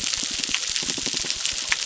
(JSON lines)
{"label": "biophony", "recorder": "SoundTrap 600"}